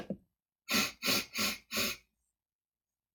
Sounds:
Sniff